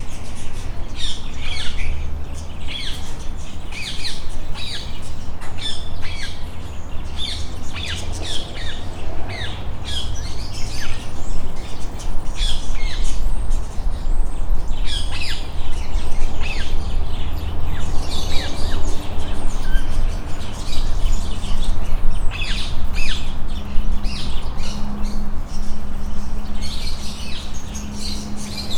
Are these animal sounds?
yes